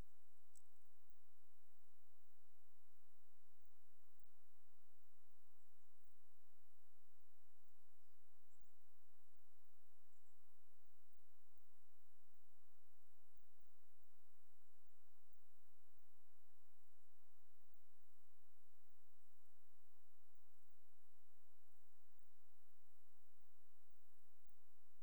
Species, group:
Poecilimon jonicus, Orthoptera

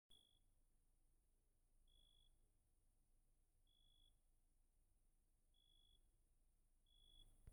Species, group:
Oecanthus pellucens, Orthoptera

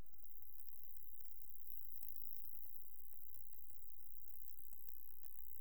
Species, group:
Stenobothrus rubicundulus, Orthoptera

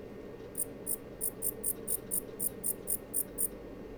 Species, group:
Pholidoptera aptera, Orthoptera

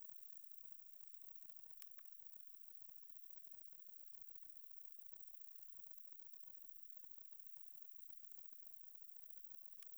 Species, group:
Conocephalus fuscus, Orthoptera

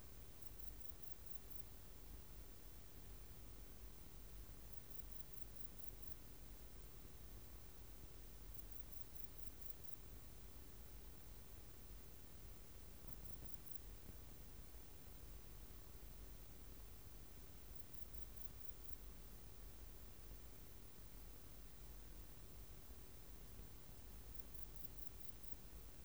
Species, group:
Modestana ebneri, Orthoptera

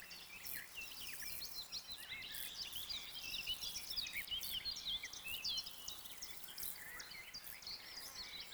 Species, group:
Chorthippus brunneus, Orthoptera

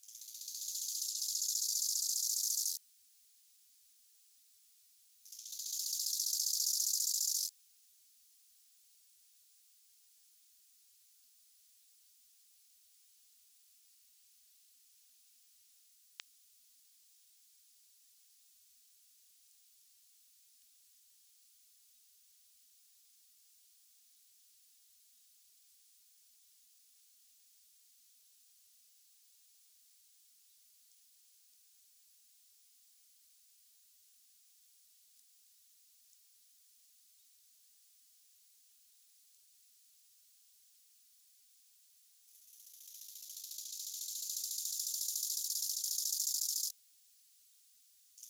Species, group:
Chorthippus biguttulus, Orthoptera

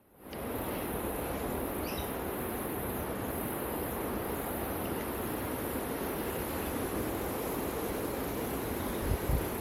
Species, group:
Telmapsalta hackeri, Cicadidae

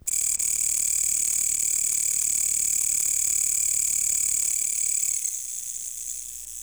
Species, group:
Mecopoda elongata, Orthoptera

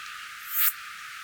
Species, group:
Poecilimon hoelzeli, Orthoptera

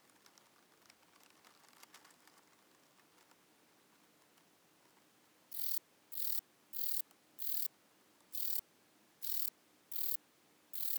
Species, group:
Rhacocleis buchichii, Orthoptera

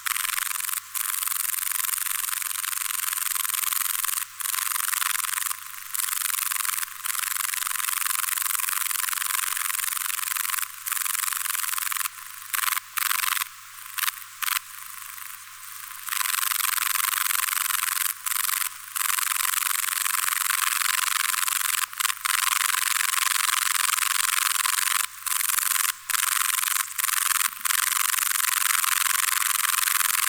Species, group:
Bicolorana bicolor, Orthoptera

